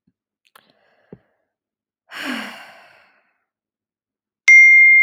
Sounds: Sigh